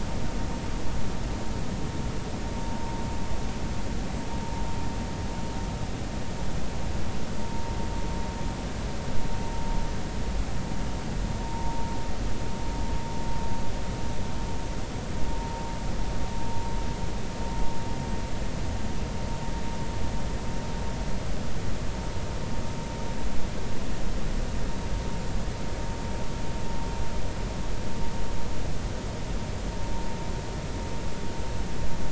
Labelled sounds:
11.4	11.9	vessel noise, 0.80 to 0.96 kHz

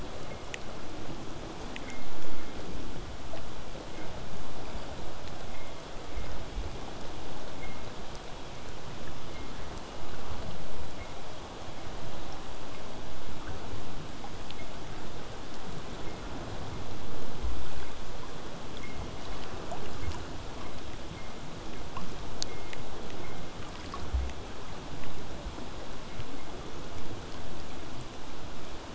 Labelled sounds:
24.0	28.9	vessel noise, 0 to 8.0 kHz

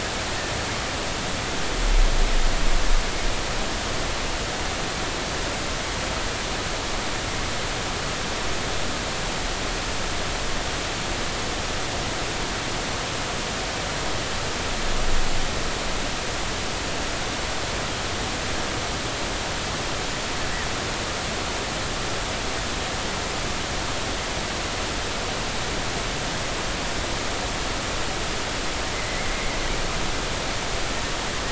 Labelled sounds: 29.0	29.3	killer whale, northern resident, 1.9 to 2.2 kHz

